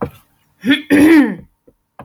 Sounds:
Throat clearing